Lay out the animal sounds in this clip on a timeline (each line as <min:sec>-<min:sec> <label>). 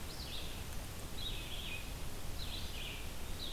0:00.0-0:03.5 Red-eyed Vireo (Vireo olivaceus)